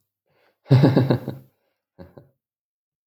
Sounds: Laughter